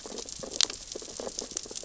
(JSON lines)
{"label": "biophony, sea urchins (Echinidae)", "recorder": "SoundTrap 600 or HydroMoth"}